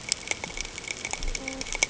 {"label": "ambient", "recorder": "HydroMoth"}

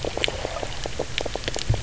{"label": "biophony, knock croak", "recorder": "SoundTrap 300"}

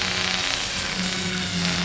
{"label": "anthrophony, boat engine", "recorder": "SoundTrap 500"}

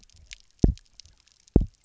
{"label": "biophony, double pulse", "recorder": "SoundTrap 300"}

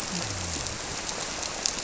{"label": "biophony", "recorder": "SoundTrap 300"}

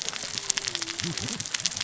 {"label": "biophony, cascading saw", "recorder": "SoundTrap 600 or HydroMoth"}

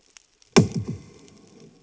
{"label": "anthrophony, bomb", "recorder": "HydroMoth"}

